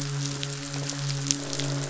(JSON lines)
{"label": "biophony, midshipman", "recorder": "SoundTrap 500"}
{"label": "biophony, croak", "recorder": "SoundTrap 500"}